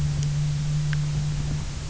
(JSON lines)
{"label": "anthrophony, boat engine", "recorder": "SoundTrap 300"}